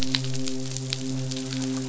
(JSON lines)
{"label": "biophony, midshipman", "recorder": "SoundTrap 500"}